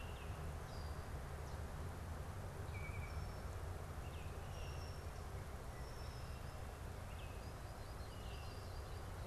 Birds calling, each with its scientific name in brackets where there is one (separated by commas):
Red-winged Blackbird (Agelaius phoeniceus), Baltimore Oriole (Icterus galbula), Solitary Sandpiper (Tringa solitaria)